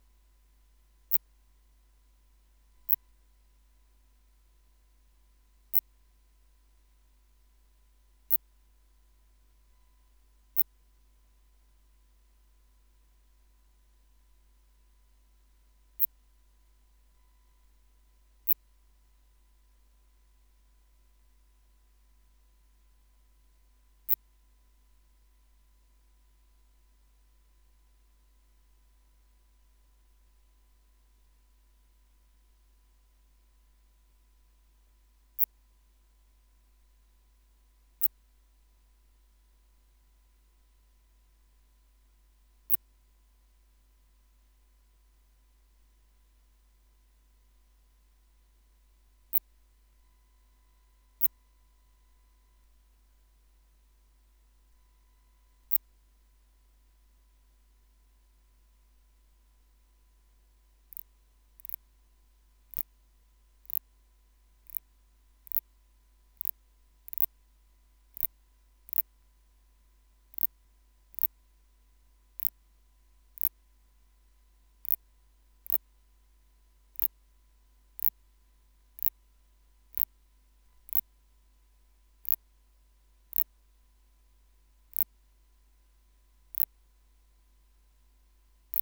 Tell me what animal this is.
Phaneroptera nana, an orthopteran